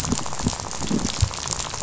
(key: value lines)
label: biophony, rattle
recorder: SoundTrap 500